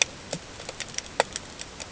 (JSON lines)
{"label": "ambient", "recorder": "HydroMoth"}